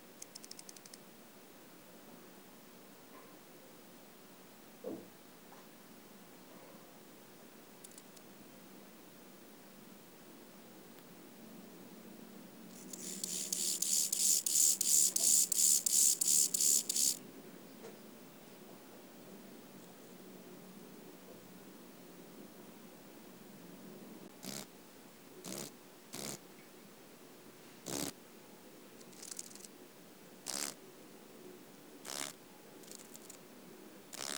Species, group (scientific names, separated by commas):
Chorthippus mollis, Orthoptera